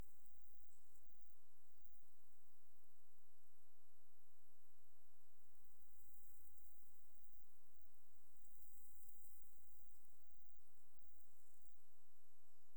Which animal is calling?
Ctenodecticus ramburi, an orthopteran